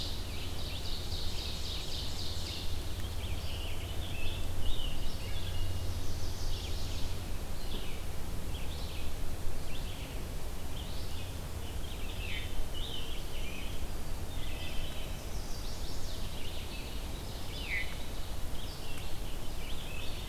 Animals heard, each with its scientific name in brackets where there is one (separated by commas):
Red-eyed Vireo (Vireo olivaceus), Chestnut-sided Warbler (Setophaga pensylvanica), Wood Thrush (Hylocichla mustelina), Ovenbird (Seiurus aurocapilla), Scarlet Tanager (Piranga olivacea), Veery (Catharus fuscescens)